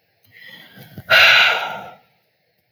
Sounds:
Sigh